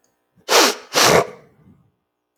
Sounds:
Sniff